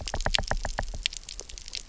{"label": "biophony, knock", "recorder": "SoundTrap 300"}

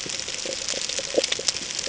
{"label": "ambient", "recorder": "HydroMoth"}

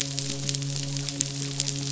{"label": "biophony, midshipman", "recorder": "SoundTrap 500"}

